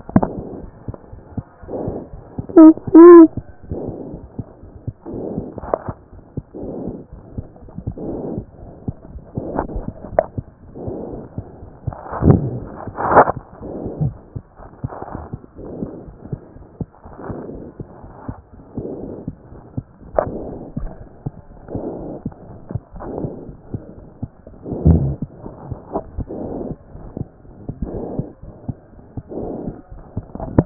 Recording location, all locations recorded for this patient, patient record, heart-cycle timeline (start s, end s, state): aortic valve (AV)
aortic valve (AV)+pulmonary valve (PV)+tricuspid valve (TV)+mitral valve (MV)
#Age: Child
#Sex: Male
#Height: 93.0 cm
#Weight: 15.4 kg
#Pregnancy status: False
#Murmur: Absent
#Murmur locations: nan
#Most audible location: nan
#Systolic murmur timing: nan
#Systolic murmur shape: nan
#Systolic murmur grading: nan
#Systolic murmur pitch: nan
#Systolic murmur quality: nan
#Diastolic murmur timing: nan
#Diastolic murmur shape: nan
#Diastolic murmur grading: nan
#Diastolic murmur pitch: nan
#Diastolic murmur quality: nan
#Outcome: Abnormal
#Campaign: 2014 screening campaign
0.00	17.45	unannotated
17.45	17.52	diastole
17.52	17.62	S1
17.62	17.80	systole
17.80	17.88	S2
17.88	18.04	diastole
18.04	18.12	S1
18.12	18.28	systole
18.28	18.36	S2
18.36	18.52	diastole
18.52	18.60	S1
18.60	18.78	systole
18.78	18.88	S2
18.88	19.02	diastole
19.02	19.12	S1
19.12	19.28	systole
19.28	19.36	S2
19.36	19.50	diastole
19.50	19.60	S1
19.60	19.76	systole
19.76	19.86	S2
19.86	20.04	diastole
20.04	30.66	unannotated